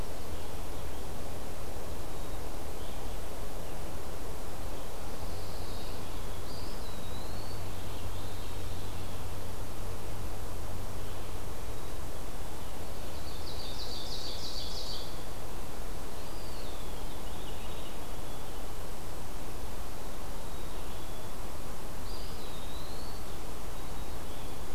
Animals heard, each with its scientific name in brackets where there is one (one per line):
Black-capped Chickadee (Poecile atricapillus)
Pine Warbler (Setophaga pinus)
Eastern Wood-Pewee (Contopus virens)
Ovenbird (Seiurus aurocapilla)
Veery (Catharus fuscescens)